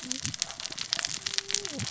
{"label": "biophony, cascading saw", "recorder": "SoundTrap 600 or HydroMoth"}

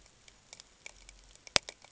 {"label": "ambient", "recorder": "HydroMoth"}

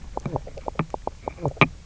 {"label": "biophony, knock croak", "recorder": "SoundTrap 300"}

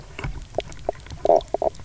{"label": "biophony, knock croak", "recorder": "SoundTrap 300"}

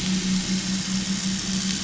{"label": "anthrophony, boat engine", "recorder": "SoundTrap 500"}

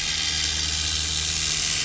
{"label": "anthrophony, boat engine", "recorder": "SoundTrap 500"}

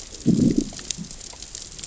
{"label": "biophony, growl", "recorder": "SoundTrap 600 or HydroMoth"}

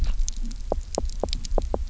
{"label": "biophony, knock", "recorder": "SoundTrap 300"}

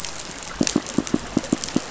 {"label": "biophony", "recorder": "SoundTrap 500"}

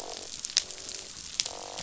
{"label": "biophony, croak", "recorder": "SoundTrap 500"}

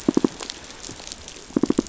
{"label": "biophony, pulse", "recorder": "SoundTrap 500"}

